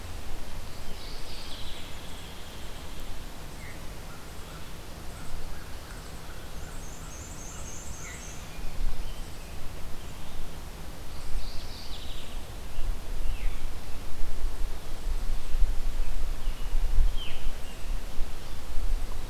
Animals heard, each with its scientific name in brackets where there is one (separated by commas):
Hairy Woodpecker (Dryobates villosus), Veery (Catharus fuscescens), American Crow (Corvus brachyrhynchos), Mourning Warbler (Geothlypis philadelphia), American Robin (Turdus migratorius), Black-and-white Warbler (Mniotilta varia)